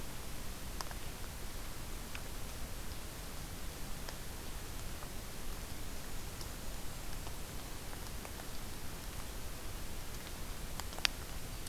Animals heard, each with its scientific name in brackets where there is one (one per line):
Golden-crowned Kinglet (Regulus satrapa)